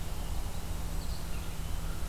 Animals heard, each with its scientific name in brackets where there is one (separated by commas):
Blue-headed Vireo (Vireo solitarius)